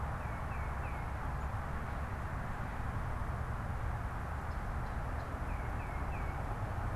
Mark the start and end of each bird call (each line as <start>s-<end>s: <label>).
0.0s-1.2s: Tufted Titmouse (Baeolophus bicolor)
5.3s-6.5s: Tufted Titmouse (Baeolophus bicolor)